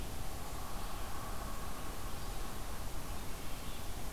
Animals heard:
forest ambience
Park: Marsh-Billings-Rockefeller National Historical Park